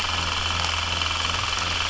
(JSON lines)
{"label": "anthrophony, boat engine", "recorder": "SoundTrap 300"}